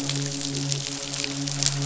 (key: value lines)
label: biophony, midshipman
recorder: SoundTrap 500